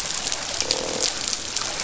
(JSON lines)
{"label": "biophony, croak", "recorder": "SoundTrap 500"}